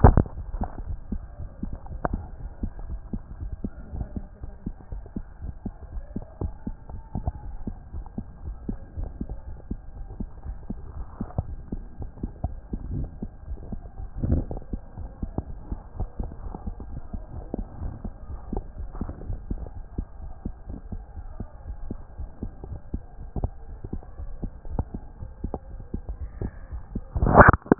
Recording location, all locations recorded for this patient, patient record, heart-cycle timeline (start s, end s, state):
aortic valve (AV)
aortic valve (AV)+pulmonary valve (PV)+tricuspid valve (TV)+mitral valve (MV)
#Age: Child
#Sex: Female
#Height: 117.0 cm
#Weight: 19.2 kg
#Pregnancy status: False
#Murmur: Absent
#Murmur locations: nan
#Most audible location: nan
#Systolic murmur timing: nan
#Systolic murmur shape: nan
#Systolic murmur grading: nan
#Systolic murmur pitch: nan
#Systolic murmur quality: nan
#Diastolic murmur timing: nan
#Diastolic murmur shape: nan
#Diastolic murmur grading: nan
#Diastolic murmur pitch: nan
#Diastolic murmur quality: nan
#Outcome: Normal
#Campaign: 2014 screening campaign
0.00	2.88	unannotated
2.88	3.00	S1
3.00	3.12	systole
3.12	3.22	S2
3.22	3.40	diastole
3.40	3.52	S1
3.52	3.62	systole
3.62	3.70	S2
3.70	3.94	diastole
3.94	4.06	S1
4.06	4.16	systole
4.16	4.26	S2
4.26	4.44	diastole
4.44	4.54	S1
4.54	4.66	systole
4.66	4.74	S2
4.74	4.92	diastole
4.92	5.02	S1
5.02	5.16	systole
5.16	5.24	S2
5.24	5.42	diastole
5.42	5.54	S1
5.54	5.64	systole
5.64	5.74	S2
5.74	5.92	diastole
5.92	6.04	S1
6.04	6.14	systole
6.14	6.24	S2
6.24	6.42	diastole
6.42	6.52	S1
6.52	6.66	systole
6.66	6.76	S2
6.76	6.92	diastole
6.92	7.02	S1
7.02	7.18	systole
7.18	7.30	S2
7.30	7.46	diastole
7.46	7.56	S1
7.56	7.66	systole
7.66	7.74	S2
7.74	7.94	diastole
7.94	8.04	S1
8.04	8.16	systole
8.16	8.26	S2
8.26	8.46	diastole
8.46	8.56	S1
8.56	8.68	systole
8.68	8.76	S2
8.76	8.98	diastole
8.98	27.79	unannotated